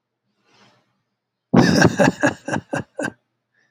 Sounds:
Laughter